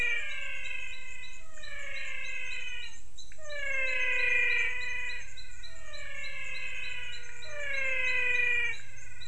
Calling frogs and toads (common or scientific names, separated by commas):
menwig frog